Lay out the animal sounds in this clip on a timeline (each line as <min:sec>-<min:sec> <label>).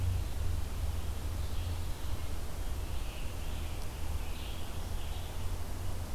0:00.0-0:06.1 Red-eyed Vireo (Vireo olivaceus)
0:02.7-0:05.5 Scarlet Tanager (Piranga olivacea)